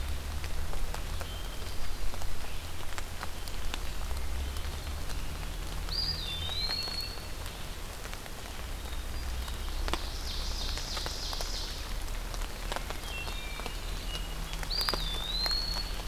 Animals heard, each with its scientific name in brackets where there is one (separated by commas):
Ovenbird (Seiurus aurocapilla), Eastern Wood-Pewee (Contopus virens), Hermit Thrush (Catharus guttatus)